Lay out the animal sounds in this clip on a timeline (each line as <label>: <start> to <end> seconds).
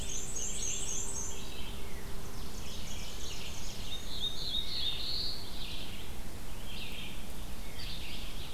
Black-and-white Warbler (Mniotilta varia): 0.0 to 1.5 seconds
Red-eyed Vireo (Vireo olivaceus): 0.0 to 8.5 seconds
Ovenbird (Seiurus aurocapilla): 2.2 to 3.9 seconds
Black-and-white Warbler (Mniotilta varia): 2.6 to 4.5 seconds
Black-throated Blue Warbler (Setophaga caerulescens): 3.7 to 5.5 seconds